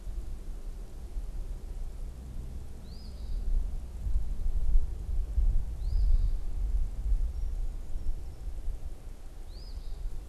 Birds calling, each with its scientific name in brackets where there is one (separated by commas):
Eastern Phoebe (Sayornis phoebe)